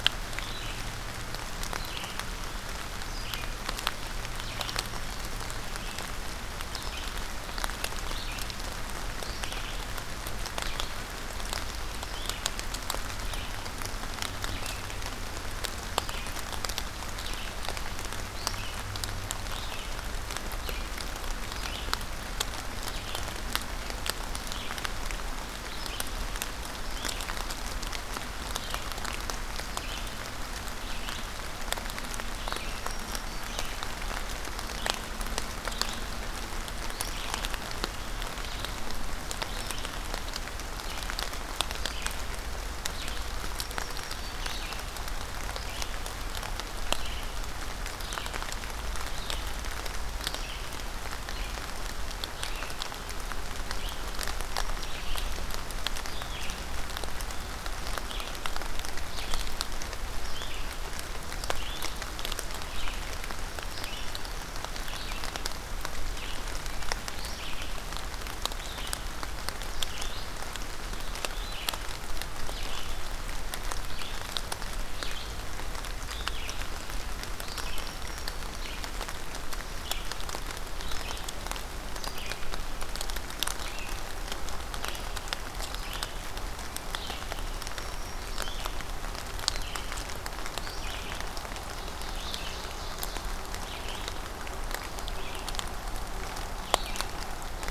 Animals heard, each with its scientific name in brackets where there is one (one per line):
Black-throated Green Warbler (Setophaga virens)
Red-eyed Vireo (Vireo olivaceus)
Ovenbird (Seiurus aurocapilla)